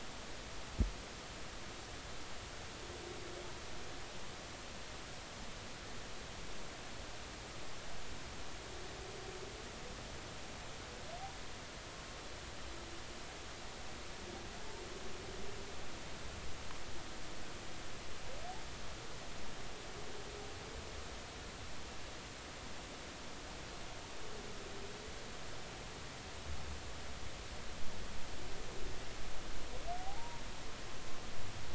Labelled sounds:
30.0	30.4	humpback whale, 0.80 to 0.99 kHz

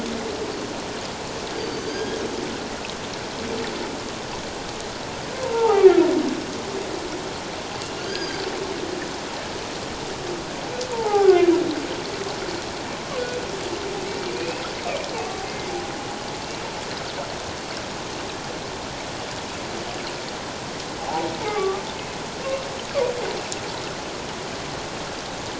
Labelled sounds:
1.6	2.2	humpback whale, 1.5 to 4.9 kHz
5.3	6.0	humpback whale, 0.78 to 1.4 kHz
8.0	8.4	humpback whale, 1.5 to 5.1 kHz
10.9	11.4	humpback whale, 0.78 to 1.7 kHz
14.3	14.7	humpback whale, 2.3 to 2.6 kHz
15.4	15.7	humpback whale, 2.0 to 2.2 kHz
21.0	21.8	humpback whale, 0.78 to 2.3 kHz

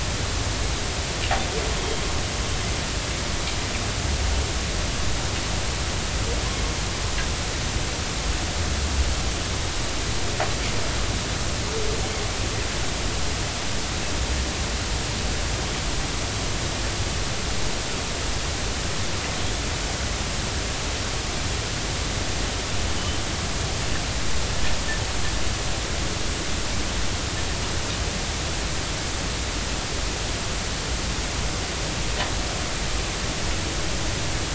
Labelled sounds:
1.8	2.0	humpback whale, 3.1 to 3.3 kHz

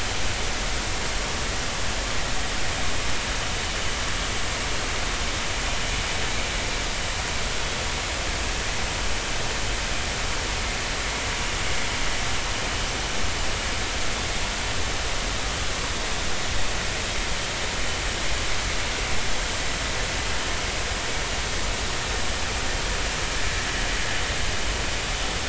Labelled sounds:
17.7	18.0	vessel noise, 3.0 to 3.1 kHz

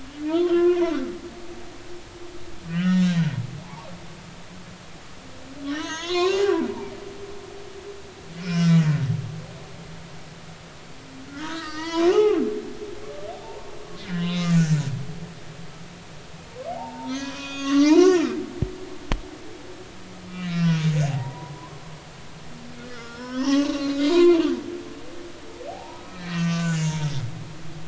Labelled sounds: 0.3	0.8	humpback whale, 0.99 to 2.9 kHz
2.7	3.9	humpback whale, 0.80 to 7.4 kHz
5.7	6.5	humpback whale, 0.80 to 7.0 kHz
8.4	9.0	humpback whale, 1.3 to 5.7 kHz
11.3	12.4	humpback whale, 0.80 to 4.7 kHz
14.2	14.6	humpback whale, 2.7 to 3.9 kHz
16.7	18.3	humpback whale, 0.80 to 6.7 kHz
20.3	20.7	humpback whale, 1.8 to 2.4 kHz
21.1	21.8	humpback whale, 0.80 to 1.1 kHz
22.9	24.4	humpback whale, 0.80 to 6.1 kHz
25.7	27.2	humpback whale, 0.80 to 7.2 kHz

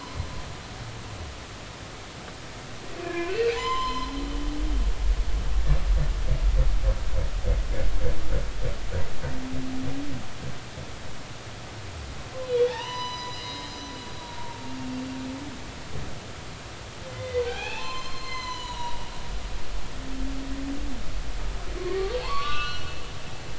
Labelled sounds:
3.0	4.1	humpback whale, 0.83 to 5.3 kHz
12.5	14.6	humpback whale, 0.80 to 6.1 kHz
17.1	19.1	humpback whale, 0.80 to 7.4 kHz
21.8	22.9	humpback whale, 0.80 to 4.7 kHz

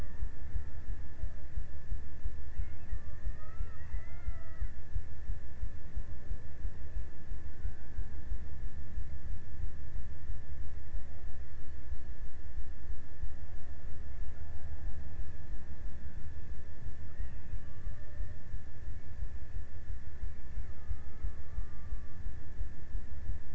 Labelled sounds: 2.5	5.5	killer whale, Bigg's (transient), 0.42 to 2.8 kHz
16.9	19.2	killer whale, Bigg's (transient), 0.95 to 2.7 kHz
20.8	23.0	killer whale, Bigg's (transient), 0.91 to 1.6 kHz

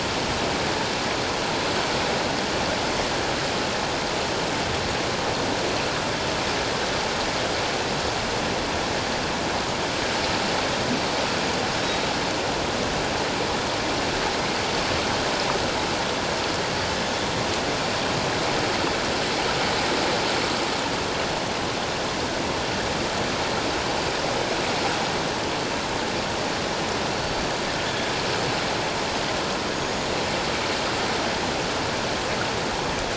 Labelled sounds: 27.2	27.5	killer whale, offshore, 4.4 to 4.6 kHz
29.7	30.2	killer whale, offshore, 6.6 to 6.8 kHz

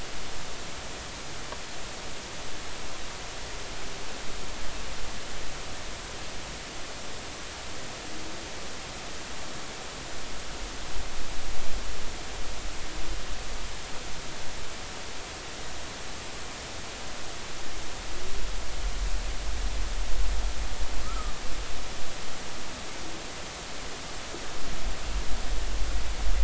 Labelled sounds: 21.0	21.3	humpback whale, 1.2 to 1.4 kHz

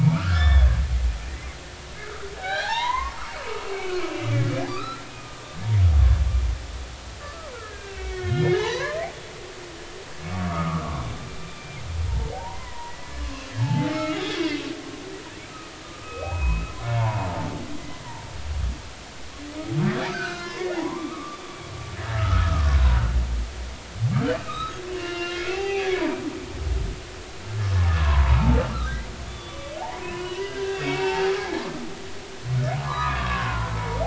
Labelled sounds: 0.1	0.7	humpback whale, 1.2 to 5.4 kHz
1.3	1.6	humpback whale, 1.8 to 2.2 kHz
2.4	3.2	humpback whale, 0.80 to 4.3 kHz
3.8	5.4	humpback whale, 1.1 to 2.7 kHz
7.6	9.0	humpback whale, 0.80 to 4.3 kHz
10.3	10.9	humpback whale, 1.1 to 1.4 kHz
11.4	11.8	humpback whale, 2.3 to 2.4 kHz
12.3	14.7	humpback whale, 0.80 to 3.7 kHz
15.8	17.5	humpback whale, 0.80 to 2.7 kHz
20.1	23.1	humpback whale, 0.80 to 6.1 kHz
24.4	25.9	humpback whale, 0.80 to 4.8 kHz
27.9	31.6	humpback whale, 0.80 to 3.6 kHz
32.8	33.7	humpback whale, 0.86 to 1.7 kHz

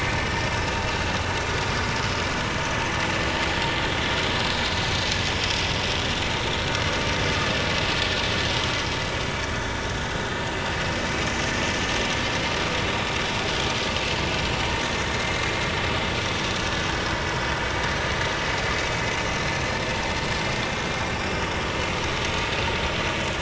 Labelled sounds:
0.7	1.1	vessel noise, 2.6 to 2.8 kHz
22.3	22.5	vessel noise, 2.5 to 2.6 kHz

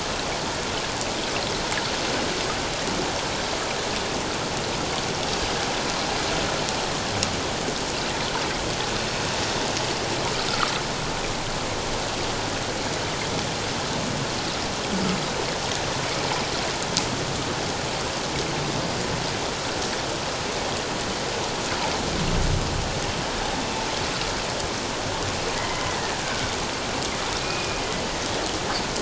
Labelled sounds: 25.6	26.5	humpback whale, 1.4 to 3.1 kHz
27.4	27.8	humpback whale, 2.4 to 2.6 kHz

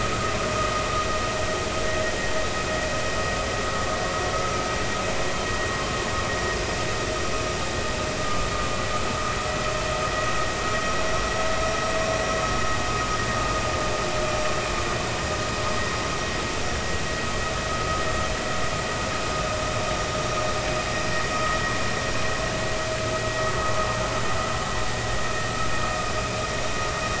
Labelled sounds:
8.2	8.5	vessel noise, 1.15 to 1.25 kHz
21.3	21.6	vessel noise, 1.1 to 1.3 kHz

